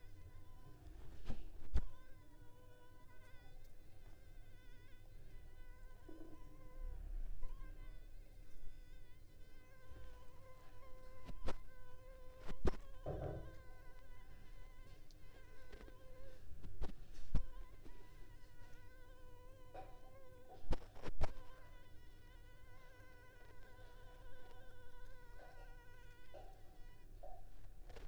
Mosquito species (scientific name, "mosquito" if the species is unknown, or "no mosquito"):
Anopheles arabiensis